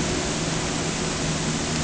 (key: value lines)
label: anthrophony, boat engine
recorder: HydroMoth